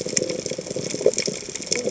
{"label": "biophony, chatter", "recorder": "HydroMoth"}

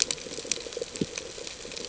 {"label": "ambient", "recorder": "HydroMoth"}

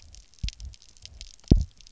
{"label": "biophony, double pulse", "recorder": "SoundTrap 300"}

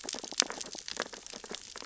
{"label": "biophony, sea urchins (Echinidae)", "recorder": "SoundTrap 600 or HydroMoth"}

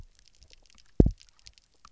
{"label": "biophony, double pulse", "recorder": "SoundTrap 300"}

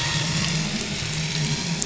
{"label": "anthrophony, boat engine", "recorder": "SoundTrap 500"}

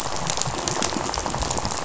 {"label": "biophony, rattle", "recorder": "SoundTrap 500"}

